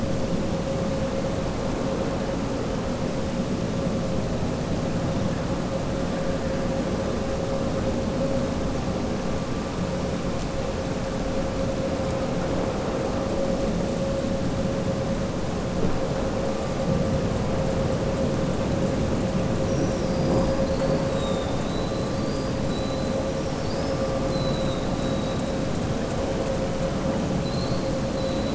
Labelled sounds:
21.0	22.0	killer whale, southern resident, 3.2 to 4.1 kHz
23.3	24.0	killer whale, southern resident, 4.4 to 5.8 kHz
27.3	28.5	killer whale, southern resident, 3.3 to 4.8 kHz

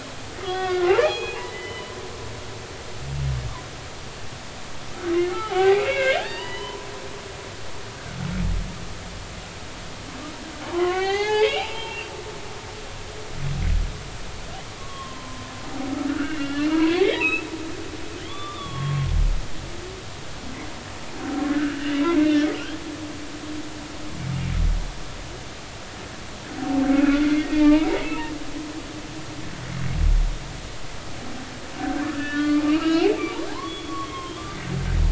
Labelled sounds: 0.4	1.9	humpback whale, 1.0 to 4.2 kHz
5.1	6.9	humpback whale, 0.80 to 3.8 kHz
10.6	12.1	humpback whale, 0.80 to 4.6 kHz
14.8	17.5	humpback whale, 0.90 to 4.0 kHz
18.2	19.1	humpback whale, 1.0 to 3.7 kHz
21.4	22.0	humpback whale, 1.2 to 3.0 kHz
26.9	27.9	humpback whale, 1.1 to 2.7 kHz
32.0	34.4	humpback whale, 0.80 to 3.5 kHz

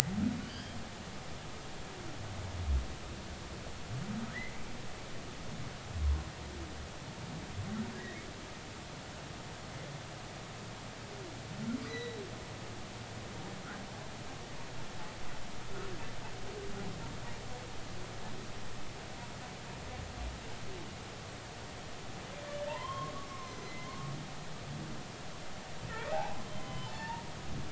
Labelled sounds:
0.4	0.8	humpback whale, 2.9 to 4.9 kHz
8.0	8.3	humpback whale, 1.8 to 2.2 kHz
11.8	12.2	humpback whale, 1.8 to 4.1 kHz
22.7	24.1	humpback whale, 0.83 to 6.4 kHz
25.9	27.2	humpback whale, 0.80 to 4.6 kHz

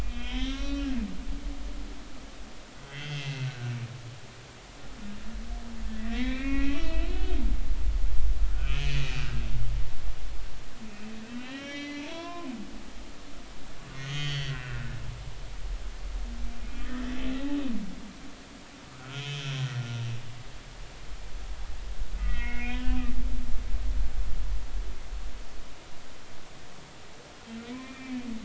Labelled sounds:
0.0	0.9	humpback whale, 1.1 to 5.2 kHz
2.7	3.9	humpback whale, 1.4 to 3.5 kHz
6.0	7.3	humpback whale, 1.7 to 4.0 kHz
8.6	9.7	humpback whale, 1.3 to 6.4 kHz
11.2	12.5	humpback whale, 0.86 to 5.8 kHz
13.9	15.0	humpback whale, 1.3 to 6.7 kHz
16.8	17.0	humpback whale, 1.7 to 2.0 kHz
19.0	19.5	humpback whale, 1.2 to 3.5 kHz
22.2	23.1	humpback whale, 1.2 to 3.3 kHz
27.6	28.3	humpback whale, 0.96 to 2.7 kHz

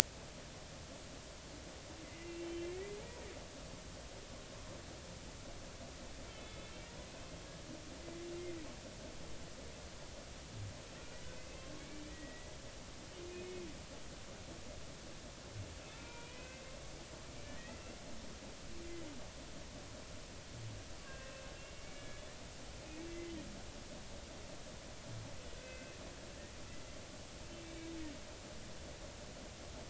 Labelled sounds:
2.0	3.0	humpback whale, 1.7 to 2.8 kHz
6.3	6.7	humpback whale, 2.1 to 3.5 kHz
11.3	11.7	humpback whale, 2.5 to 2.7 kHz
12.1	12.5	humpback whale, 1.9 to 2.0 kHz
13.3	13.5	humpback whale, 2.4 to 2.6 kHz
16.0	16.6	humpback whale, 0.90 to 2.7 kHz
17.6	17.9	humpback whale, 2.5 to 2.8 kHz
21.0	22.2	humpback whale, 1.5 to 2.9 kHz
23.1	23.3	humpback whale, 2.0 to 2.1 kHz
25.5	26.0	humpback whale, 1.5 to 2.7 kHz

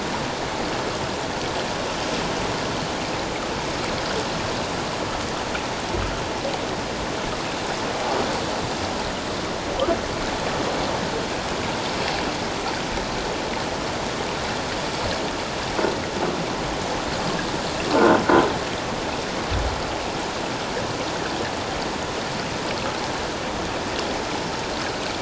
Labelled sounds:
17.9	18.2	croaking sound likely from a nearby submerged object, 1.4 to 1.6 kHz

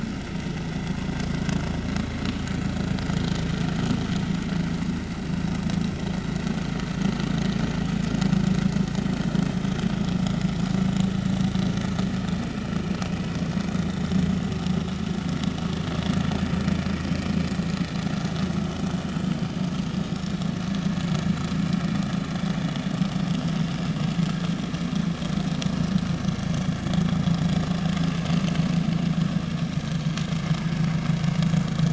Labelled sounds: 1.5	1.7	vessel noise, 1.1 to 1.2 kHz
3.2	3.5	vessel noise, 3.0 to 3.3 kHz
17.1	17.4	vessel noise, 2.2 to 2.5 kHz
23.3	23.5	vessel noise, 3.1 to 3.3 kHz

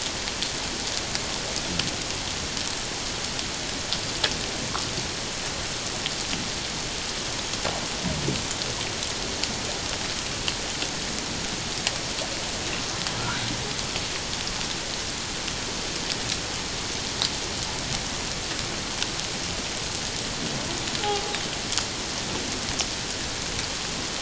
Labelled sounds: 21.0	21.3	humpback whale, 0.78 to 0.88 kHz

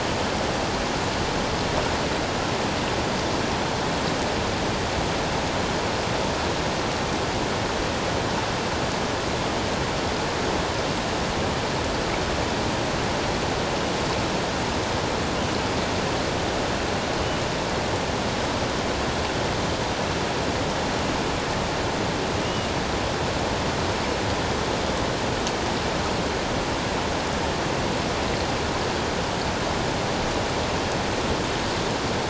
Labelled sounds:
22.4	22.7	killer whale, 2.7 to 3.0 kHz

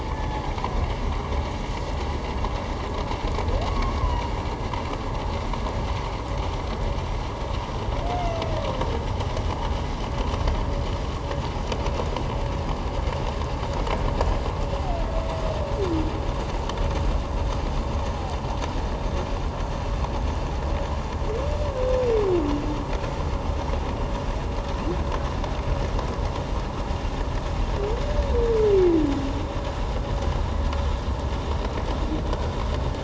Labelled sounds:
0.1	0.4	humpback whale, 1.7 to 1.8 kHz
3.6	4.0	humpback whale, 1.0 to 1.2 kHz
28.7	29.0	humpback whale, 2.0 to 2.4 kHz

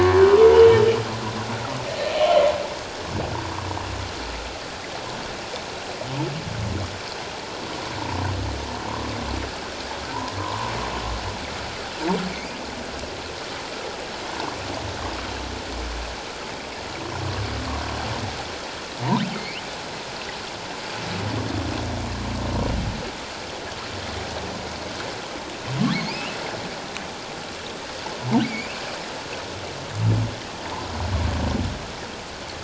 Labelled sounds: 10.4	10.7	humpback whale, 0.91 to 1.2 kHz
19.3	19.6	humpback whale, 2.1 to 3.1 kHz
26.1	26.4	humpback whale, 2.3 to 3.1 kHz
28.4	28.8	humpback whale, 2.1 to 2.9 kHz

